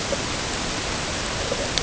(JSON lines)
{"label": "ambient", "recorder": "HydroMoth"}